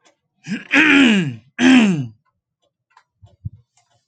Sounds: Throat clearing